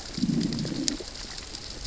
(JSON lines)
{"label": "biophony, growl", "recorder": "SoundTrap 600 or HydroMoth"}